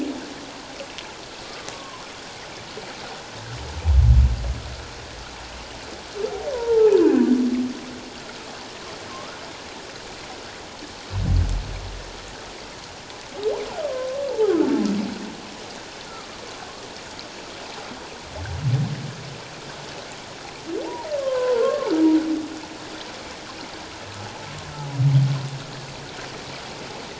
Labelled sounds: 1.4	2.0	humpback whale, 0.84 to 1.3 kHz
6.5	7.3	humpback whale, 0.81 to 2.6 kHz
9.1	9.4	humpback whale, 1.0 to 1.5 kHz
13.8	14.1	humpback whale, 0.97 to 1.3 kHz
21.2	21.9	humpback whale, 0.91 to 1.6 kHz

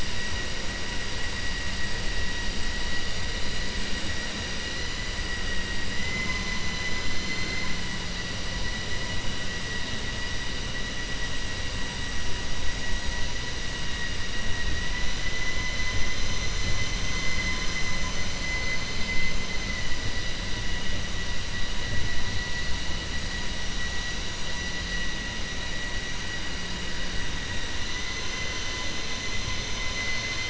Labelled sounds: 14.5	15.9	vessel noise, 1.0 to 3.0 kHz

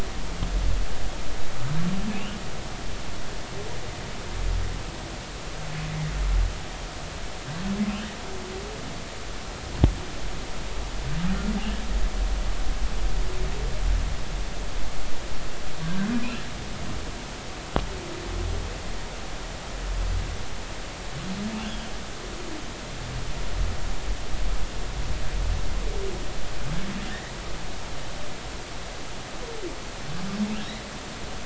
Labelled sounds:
27.1	27.3	humpback whale, 1.7 to 2.0 kHz

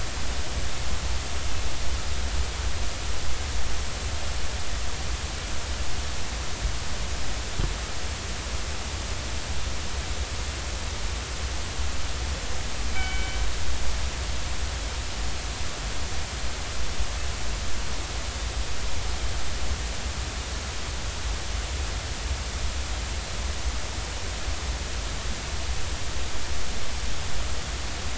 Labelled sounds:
12.9	13.4	killer whale, northern resident, 1.4 to 3.1 kHz

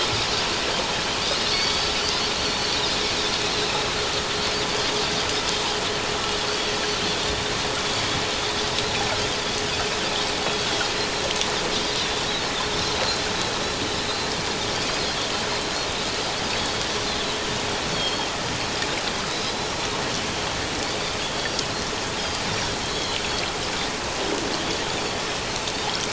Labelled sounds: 1.5	1.9	Pacific white-sided dolphin, 2.2 to 4.7 kHz
3.4	3.7	Pacific white-sided dolphin, 3.9 to 4.2 kHz
13.0	13.3	Pacific white-sided dolphin, 4.0 to 4.3 kHz
14.9	15.1	Pacific white-sided dolphin, 4.7 to 5.1 kHz
16.5	16.8	Pacific white-sided dolphin, 4.3 to 4.6 kHz
17.9	18.3	Pacific white-sided dolphin, 3.1 to 3.4 kHz
19.3	19.5	Pacific white-sided dolphin, 3.7 to 4.1 kHz
22.2	22.4	Pacific white-sided dolphin, 3.1 to 5.2 kHz

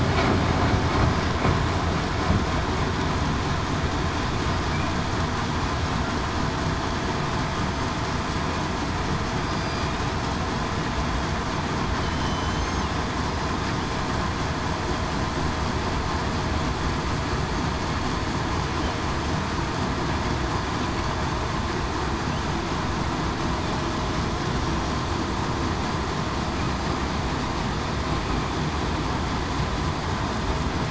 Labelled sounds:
9.4	9.9	killer whale, southern resident, 4.7 to 4.9 kHz
12.0	12.7	killer whale, southern resident, 3.0 to 4.1 kHz

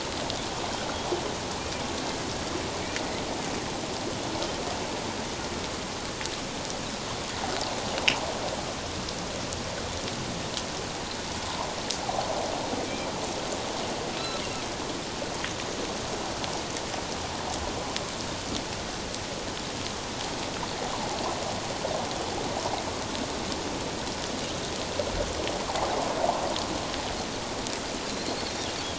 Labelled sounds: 25.7	26.0	water noise, 0.78 to 0.97 kHz
28.3	28.5	Pacific white-sided dolphin, 4.1 to 4.6 kHz

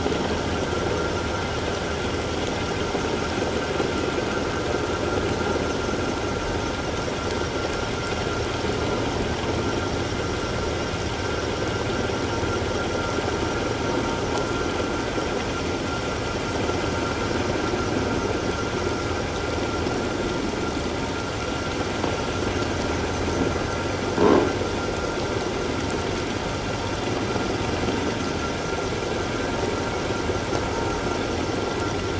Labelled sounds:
24.2	24.4	croaking sound likely from a nearby submerged object, 0.91 to 1.2 kHz

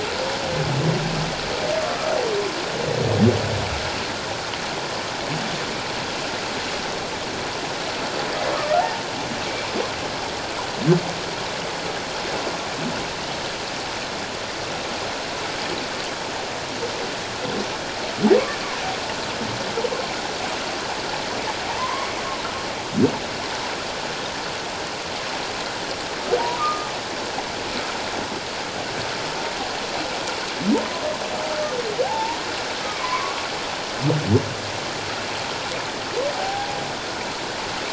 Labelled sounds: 1.8	2.1	humpback whale, 1.1 to 1.3 kHz
8.5	8.8	humpback whale, 1.1 to 1.5 kHz
21.8	22.2	humpback whale, 0.91 to 2.3 kHz
26.4	26.9	humpback whale, 0.88 to 1.3 kHz
32.0	33.4	humpback whale, 0.78 to 1.3 kHz
36.4	36.7	humpback whale, 0.78 to 0.84 kHz

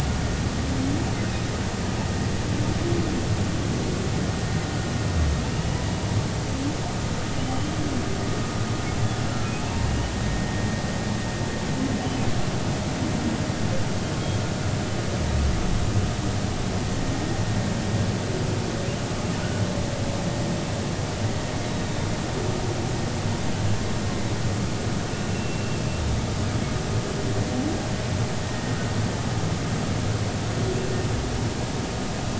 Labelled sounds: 5.5	5.8	humpback whale, 2.7 to 3.0 kHz
7.4	7.7	humpback whale, 2.9 to 3.2 kHz
9.3	9.5	humpback whale, 1.3 to 1.4 kHz
9.9	10.1	humpback whale, 2.8 to 3.0 kHz
25.3	25.8	humpback whale, 2.6 to 2.8 kHz

